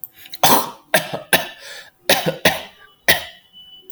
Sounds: Cough